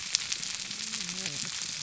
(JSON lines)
{"label": "biophony, whup", "recorder": "SoundTrap 300"}